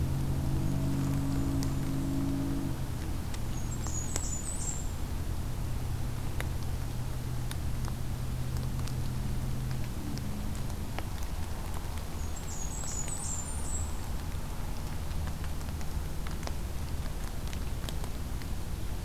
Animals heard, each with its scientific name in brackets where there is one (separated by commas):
Blackburnian Warbler (Setophaga fusca)